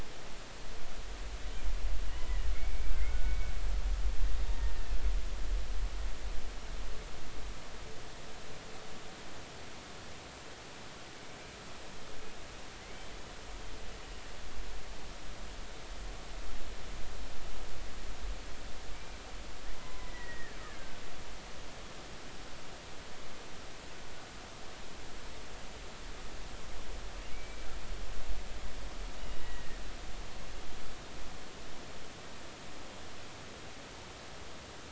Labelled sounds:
2.5	3.5	killer whale, Bigg's (transient), 1.4 to 2.4 kHz
12.8	13.1	killer whale, Bigg's (transient), 2.0 to 2.3 kHz
18.9	19.2	killer whale, Bigg's (transient), 2.2 to 2.4 kHz
19.7	20.6	killer whale, Bigg's (transient), 0.96 to 2.0 kHz
27.3	27.7	killer whale, Bigg's (transient), 2.2 to 2.4 kHz
29.2	29.8	killer whale, Bigg's (transient), 1.7 to 3.0 kHz

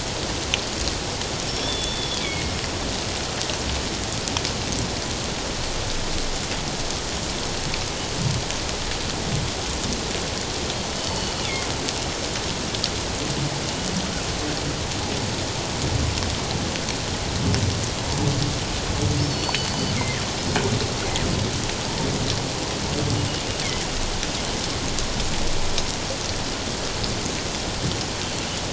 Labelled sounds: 1.5	2.5	killer whale, northern resident, G clan, 2.1 to 5.5 kHz
11.0	11.3	killer whale, northern resident, G clan, 2.9 to 4.6 kHz
19.3	20.2	killer whale, northern resident, G clan, 1.7 to 4.6 kHz

